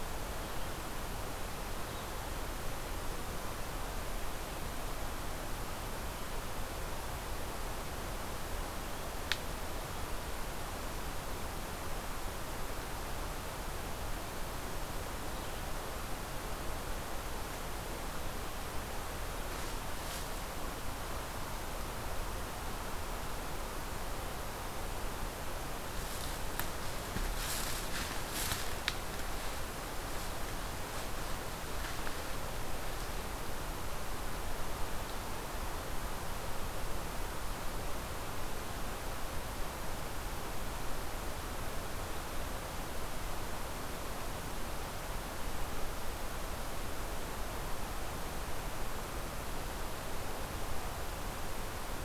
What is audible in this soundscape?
forest ambience